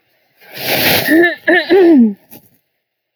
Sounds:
Throat clearing